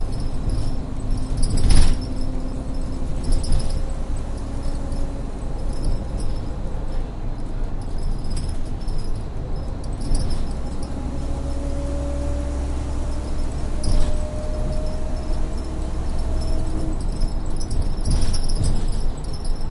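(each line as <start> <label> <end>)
0.0 A bus is moving with a loose handrail. 19.7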